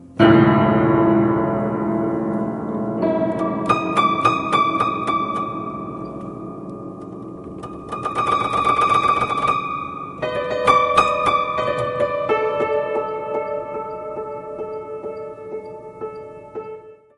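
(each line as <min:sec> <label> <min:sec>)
0:00.2 A detuned, spooky solo piano plays. 0:17.2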